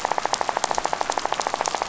{"label": "biophony, rattle", "recorder": "SoundTrap 500"}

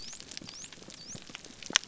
{"label": "biophony", "recorder": "SoundTrap 300"}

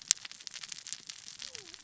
{"label": "biophony, cascading saw", "recorder": "SoundTrap 600 or HydroMoth"}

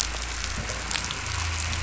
{"label": "anthrophony, boat engine", "recorder": "SoundTrap 500"}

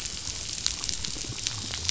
{"label": "biophony", "recorder": "SoundTrap 500"}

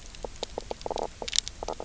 {"label": "biophony, knock croak", "recorder": "SoundTrap 300"}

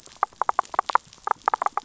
{"label": "biophony, rattle", "recorder": "SoundTrap 500"}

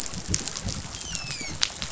{"label": "biophony, dolphin", "recorder": "SoundTrap 500"}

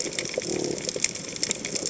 {"label": "biophony", "recorder": "HydroMoth"}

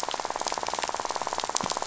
{"label": "biophony, rattle", "recorder": "SoundTrap 500"}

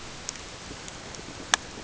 {"label": "ambient", "recorder": "HydroMoth"}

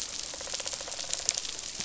{"label": "biophony, rattle response", "recorder": "SoundTrap 500"}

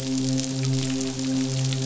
{"label": "biophony, midshipman", "recorder": "SoundTrap 500"}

